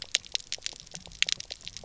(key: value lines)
label: biophony, pulse
recorder: SoundTrap 300